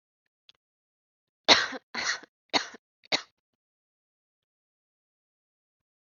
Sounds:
Cough